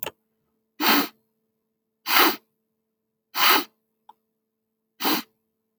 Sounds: Sniff